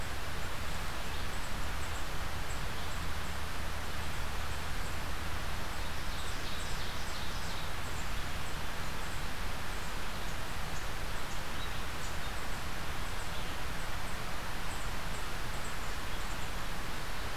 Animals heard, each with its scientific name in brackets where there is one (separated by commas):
Ovenbird (Seiurus aurocapilla)